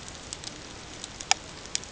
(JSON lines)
{"label": "ambient", "recorder": "HydroMoth"}